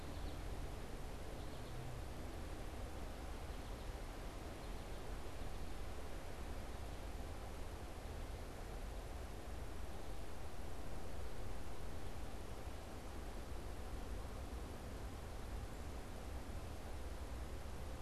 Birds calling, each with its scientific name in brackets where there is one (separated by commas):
American Goldfinch (Spinus tristis)